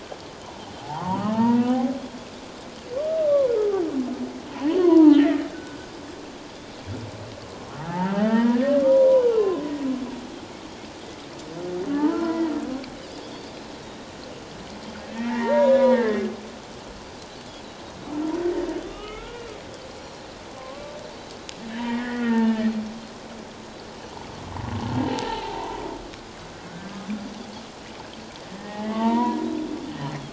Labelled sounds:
0.8	1.9	humpback whale, 0.78 to 2.0 kHz
3.2	3.8	humpback whale, 0.97 to 1.3 kHz
4.7	5.8	humpback whale, 0.81 to 4.5 kHz
7.8	9.7	humpback whale, 0.78 to 3.0 kHz
12.0	12.5	humpback whale, 0.81 to 2.0 kHz
15.1	16.2	humpback whale, 0.84 to 2.2 kHz
18.8	19.6	humpback whale, 1.1 to 3.1 kHz
19.9	20.3	Pacific white-sided dolphin, 4.1 to 7.2 kHz
20.6	21.0	humpback whale, 0.97 to 1.2 kHz
21.7	22.7	humpback whale, 0.88 to 3.2 kHz
25.3	25.6	humpback whale, 0.78 to 1.0 kHz
26.7	27.0	humpback whale, 1.4 to 1.6 kHz
28.5	29.4	humpback whale, 0.84 to 2.0 kHz
30.0	30.2	Pacific white-sided dolphin, 4.0 to 4.3 kHz

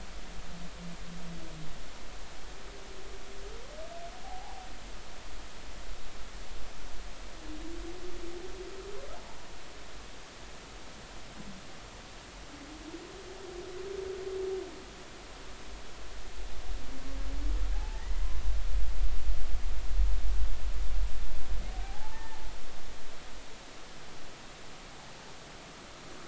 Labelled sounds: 4.2	4.6	humpback whale, 0.80 to 1.0 kHz
17.7	18.0	humpback whale, 0.80 to 0.93 kHz
21.7	22.4	humpback whale, 0.80 to 1.9 kHz

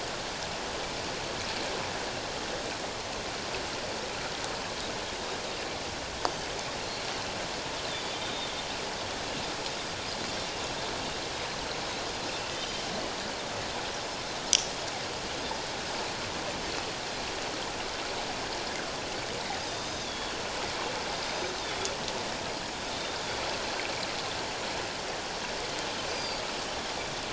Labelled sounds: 6.8	7.1	Pacific white-sided dolphin, 4.0 to 4.5 kHz
8.2	8.5	Pacific white-sided dolphin, 3.4 to 3.8 kHz
12.5	12.9	Pacific white-sided dolphin, 2.9 to 3.2 kHz
19.7	20.3	Pacific white-sided dolphin, 3.3 to 6.4 kHz
21.2	21.9	Pacific white-sided dolphin, 3.3 to 6.3 kHz
26.1	26.4	Pacific white-sided dolphin, 4.5 to 4.9 kHz

